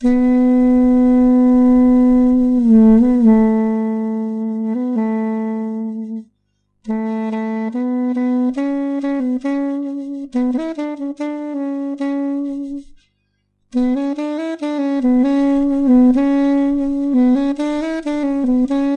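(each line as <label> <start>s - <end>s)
An ethnic melodic duduk tune is played indoors. 0.0s - 13.0s
An ethnic melodic duduk tune is played indoors. 13.6s - 19.0s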